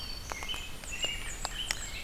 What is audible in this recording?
Black-throated Green Warbler, Red-eyed Vireo, American Robin, Blackburnian Warbler